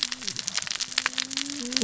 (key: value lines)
label: biophony, cascading saw
recorder: SoundTrap 600 or HydroMoth